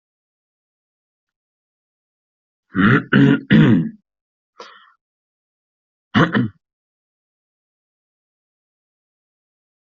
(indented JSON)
{
  "expert_labels": [
    {
      "quality": "no cough present",
      "cough_type": "unknown",
      "dyspnea": false,
      "wheezing": false,
      "stridor": false,
      "choking": false,
      "congestion": false,
      "nothing": false,
      "diagnosis": "healthy cough",
      "severity": "unknown"
    }
  ],
  "age": 23,
  "gender": "male",
  "respiratory_condition": false,
  "fever_muscle_pain": false,
  "status": "healthy"
}